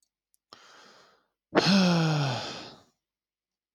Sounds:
Sigh